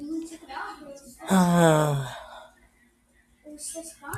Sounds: Sigh